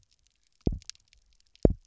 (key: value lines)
label: biophony, double pulse
recorder: SoundTrap 300